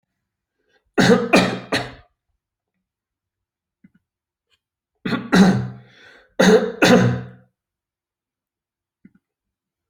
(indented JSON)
{
  "expert_labels": [
    {
      "quality": "good",
      "cough_type": "dry",
      "dyspnea": false,
      "wheezing": false,
      "stridor": false,
      "choking": false,
      "congestion": false,
      "nothing": true,
      "diagnosis": "upper respiratory tract infection",
      "severity": "mild"
    }
  ],
  "age": 40,
  "gender": "male",
  "respiratory_condition": false,
  "fever_muscle_pain": false,
  "status": "healthy"
}